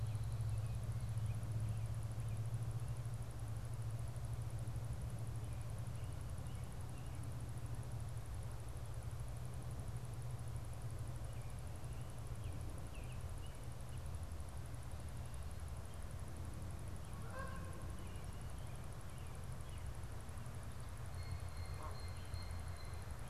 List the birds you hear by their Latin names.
Turdus migratorius, Branta canadensis, Cyanocitta cristata